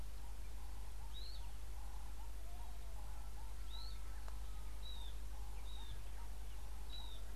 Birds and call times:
Pale White-eye (Zosterops flavilateralis): 0:01.2, 0:05.8

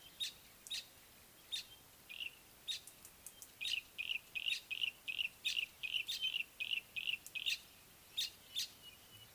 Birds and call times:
Village Weaver (Ploceus cucullatus): 0:01.5, 0:08.2
Yellow-breasted Apalis (Apalis flavida): 0:04.1, 0:06.6

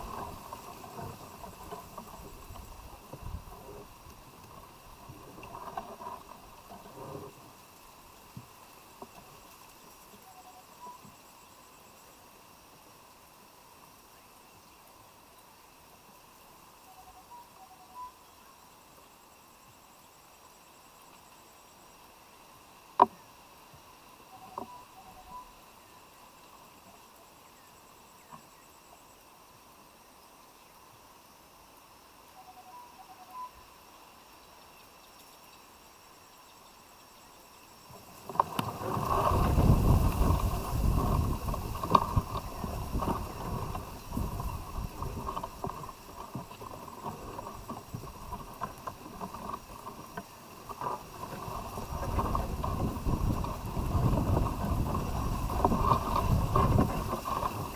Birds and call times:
Tropical Boubou (Laniarius major): 0:10.2, 0:17.7, 0:32.6

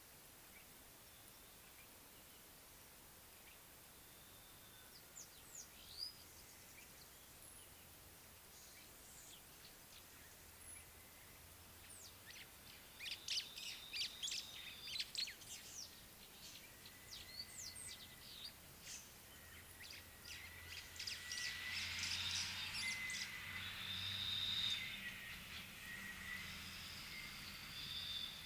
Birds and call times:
White-browed Sparrow-Weaver (Plocepasser mahali): 0:14.0

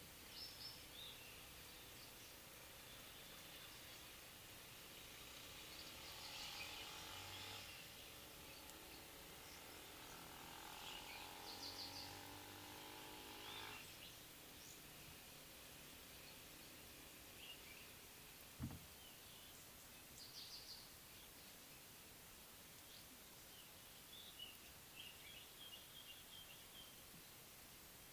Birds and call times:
African Pied Wagtail (Motacilla aguimp): 0:20.5

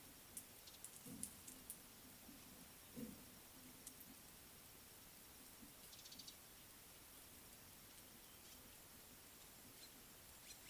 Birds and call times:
Beautiful Sunbird (Cinnyris pulchellus): 0:06.0

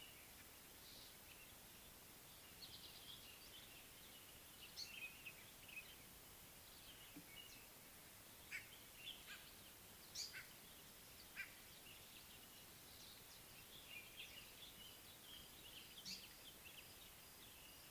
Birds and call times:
White-bellied Go-away-bird (Corythaixoides leucogaster): 0:08.6
African Paradise-Flycatcher (Terpsiphone viridis): 0:16.1

